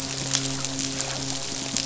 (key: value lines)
label: biophony
recorder: SoundTrap 500

label: biophony, midshipman
recorder: SoundTrap 500